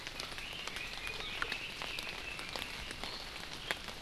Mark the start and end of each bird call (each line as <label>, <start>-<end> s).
Red-billed Leiothrix (Leiothrix lutea), 0.3-2.9 s